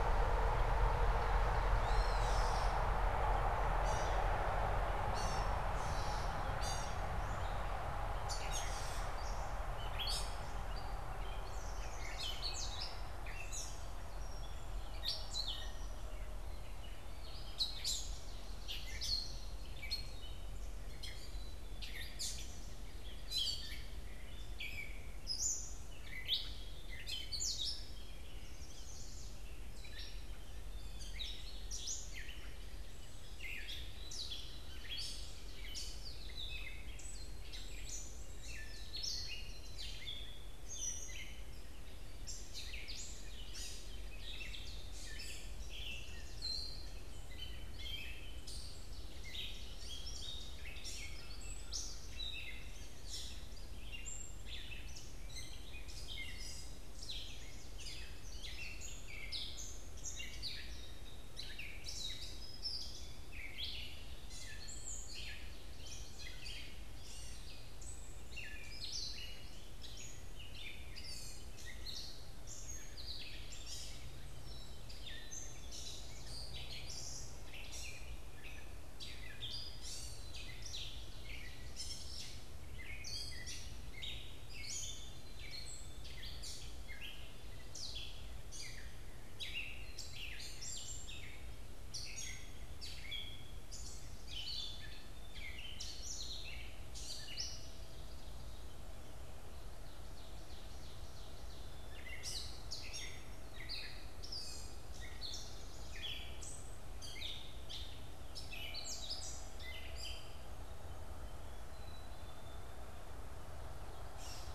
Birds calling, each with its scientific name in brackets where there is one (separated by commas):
Song Sparrow (Melospiza melodia), Chestnut-sided Warbler (Setophaga pensylvanica), Ovenbird (Seiurus aurocapilla), Gray Catbird (Dumetella carolinensis), Black-capped Chickadee (Poecile atricapillus)